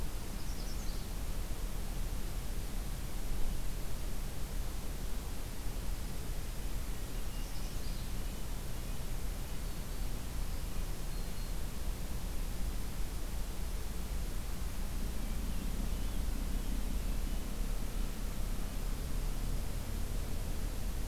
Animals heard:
Red-breasted Nuthatch (Sitta canadensis), Magnolia Warbler (Setophaga magnolia), Black-throated Green Warbler (Setophaga virens), Hermit Thrush (Catharus guttatus)

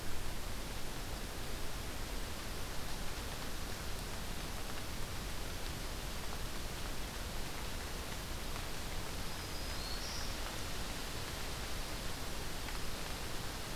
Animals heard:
Black-throated Green Warbler (Setophaga virens)

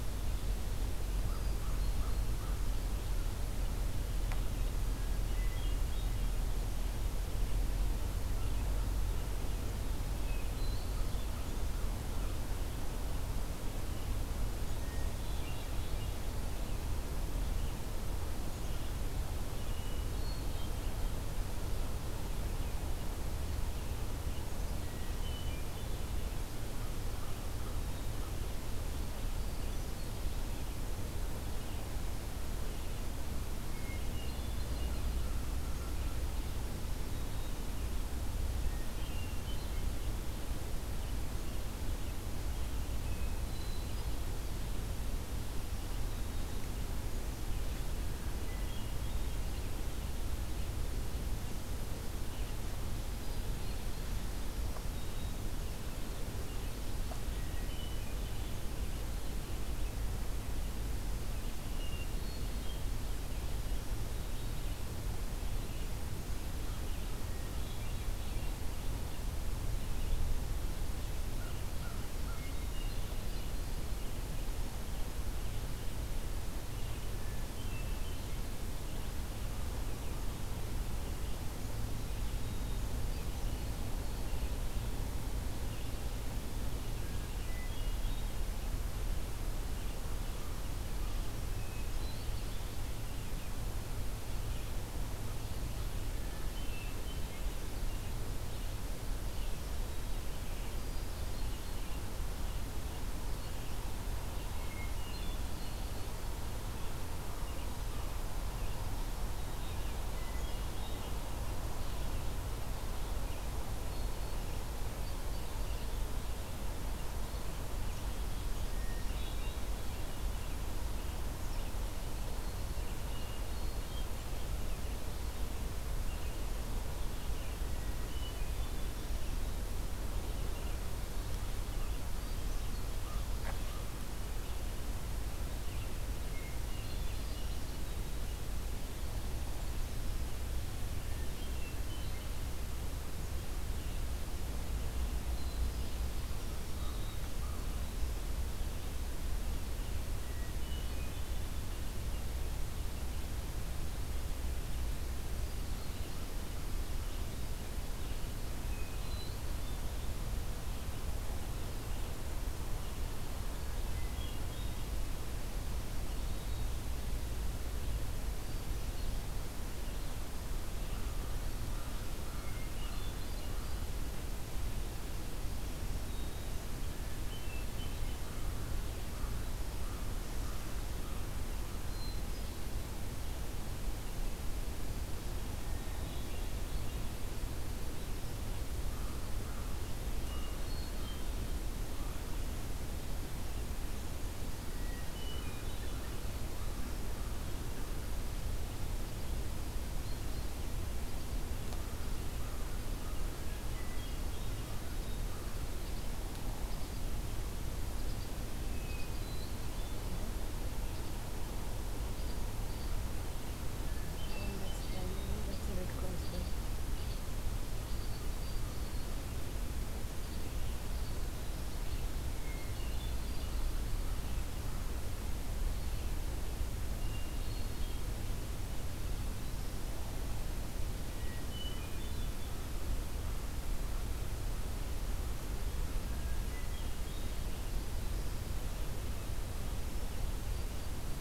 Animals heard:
Hermit Thrush (Catharus guttatus), Red Crossbill (Loxia curvirostra), Black-capped Chickadee (Poecile atricapillus), Red-eyed Vireo (Vireo olivaceus), American Crow (Corvus brachyrhynchos), Black-throated Green Warbler (Setophaga virens)

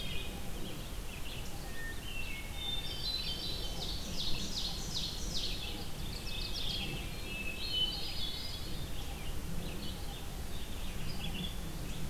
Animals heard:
Mourning Warbler (Geothlypis philadelphia), Ovenbird (Seiurus aurocapilla), Red-eyed Vireo (Vireo olivaceus), Hermit Thrush (Catharus guttatus)

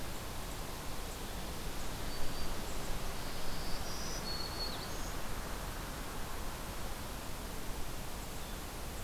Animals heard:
Black-throated Green Warbler (Setophaga virens)

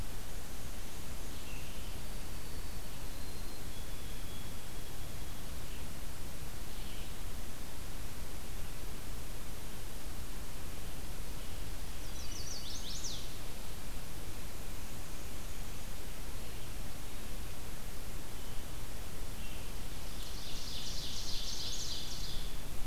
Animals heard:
White-throated Sparrow (Zonotrichia albicollis), Ovenbird (Seiurus aurocapilla), Black-and-white Warbler (Mniotilta varia), Chestnut-sided Warbler (Setophaga pensylvanica)

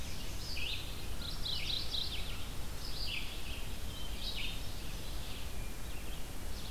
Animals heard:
Ovenbird (Seiurus aurocapilla), Mourning Warbler (Geothlypis philadelphia), Red-eyed Vireo (Vireo olivaceus), Hermit Thrush (Catharus guttatus)

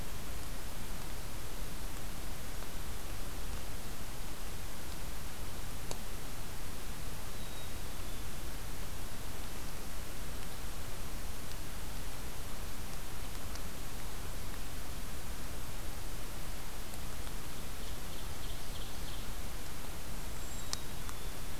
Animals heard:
Black-capped Chickadee (Poecile atricapillus), Cedar Waxwing (Bombycilla cedrorum), Ovenbird (Seiurus aurocapilla)

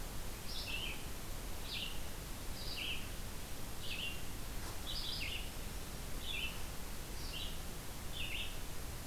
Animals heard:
Red-eyed Vireo (Vireo olivaceus)

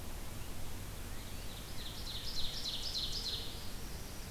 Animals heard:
Northern Parula (Setophaga americana), Northern Cardinal (Cardinalis cardinalis), Ovenbird (Seiurus aurocapilla)

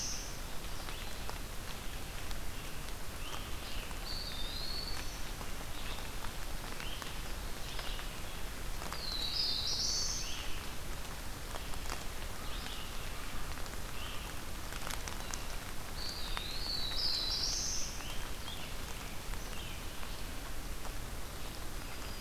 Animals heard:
Black-throated Blue Warbler (Setophaga caerulescens), Eastern Wood-Pewee (Contopus virens), Black-throated Green Warbler (Setophaga virens), Red-eyed Vireo (Vireo olivaceus)

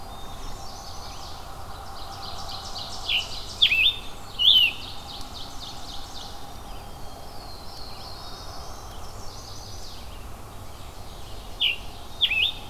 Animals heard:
Ovenbird (Seiurus aurocapilla), Scarlet Tanager (Piranga olivacea), Chestnut-sided Warbler (Setophaga pensylvanica), Pine Warbler (Setophaga pinus), Black-throated Blue Warbler (Setophaga caerulescens), Black-throated Green Warbler (Setophaga virens), Black-capped Chickadee (Poecile atricapillus), Red-eyed Vireo (Vireo olivaceus), Blackburnian Warbler (Setophaga fusca)

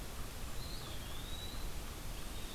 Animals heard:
Blue-headed Vireo (Vireo solitarius), Eastern Wood-Pewee (Contopus virens)

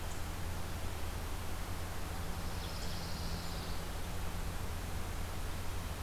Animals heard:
Pine Warbler (Setophaga pinus)

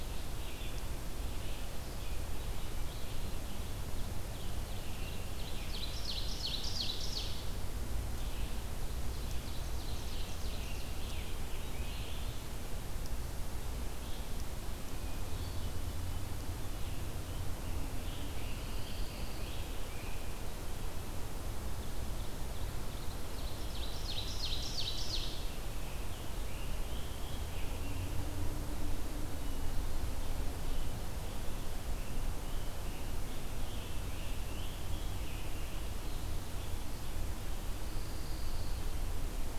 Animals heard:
Red-eyed Vireo (Vireo olivaceus), Pine Warbler (Setophaga pinus), Scarlet Tanager (Piranga olivacea), Ovenbird (Seiurus aurocapilla)

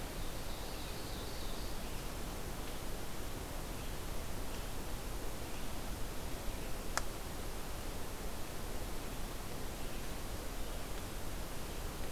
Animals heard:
Ovenbird (Seiurus aurocapilla)

